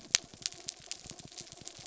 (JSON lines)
{"label": "anthrophony, mechanical", "recorder": "SoundTrap 300"}